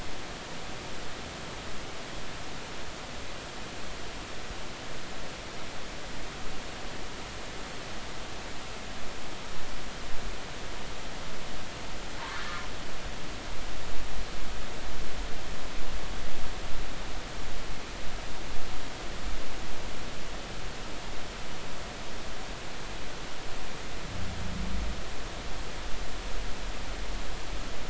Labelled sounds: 12.3	12.6	humpback whale, 1.6 to 1.8 kHz

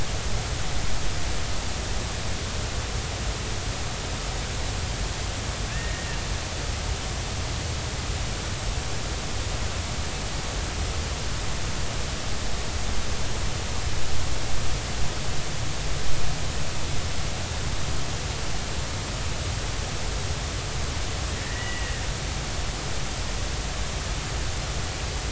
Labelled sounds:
5.7	6.1	killer whale, Bigg's (transient), 1.6 to 1.9 kHz
21.4	21.9	killer whale, Bigg's (transient), 1.7 to 3.0 kHz

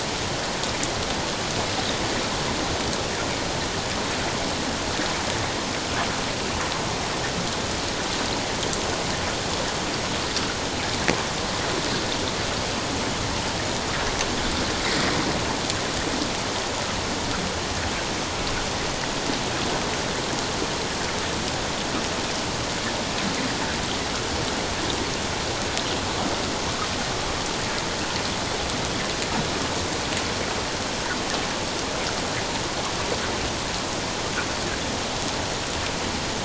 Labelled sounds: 14.9	15.1	water noise, 1.8 to 2.2 kHz

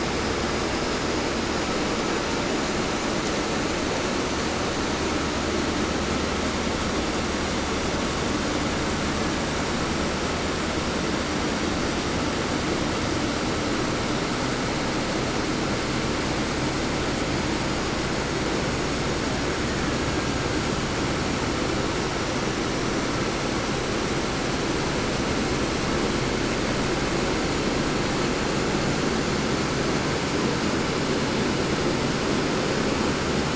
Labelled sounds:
19.5	20.7	killer whale, Bigg's (transient), 0.72 to 2.9 kHz

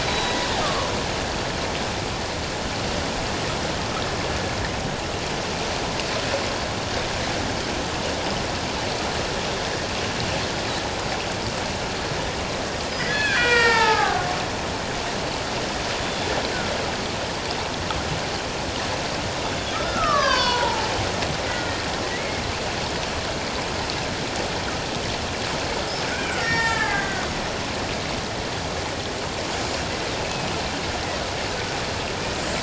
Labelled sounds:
0.0	0.9	killer whale, Bigg's (transient), 0.97 to 4.0 kHz
12.9	14.3	killer whale, Bigg's (transient), 0.78 to 5.2 kHz
19.4	20.9	killer whale, Bigg's (transient), 0.81 to 6.2 kHz
21.4	22.4	killer whale, Bigg's (transient), 1.4 to 2.3 kHz
26.1	27.2	killer whale, Bigg's (transient), 1.1 to 6.9 kHz
29.3	29.9	killer whale, Bigg's (transient), 5.7 to 7.4 kHz
30.2	30.5	killer whale, Bigg's (transient), 2.5 to 2.7 kHz

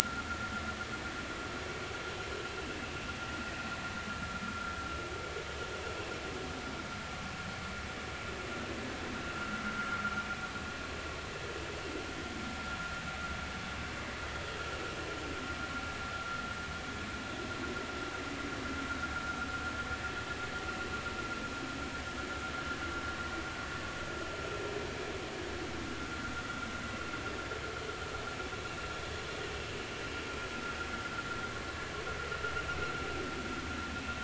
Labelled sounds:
0.2	0.5	vessel noise, 1.3 to 1.5 kHz
1.0	1.2	vessel noise, 1.3 to 1.5 kHz
9.3	9.6	vessel noise, 1.2 to 1.5 kHz

